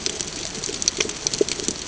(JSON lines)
{"label": "ambient", "recorder": "HydroMoth"}